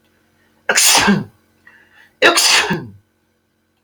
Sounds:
Sneeze